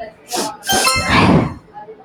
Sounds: Sniff